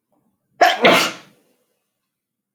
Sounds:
Sneeze